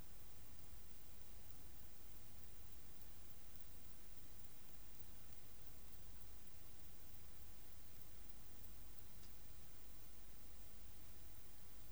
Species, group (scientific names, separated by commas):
Antaxius spinibrachius, Orthoptera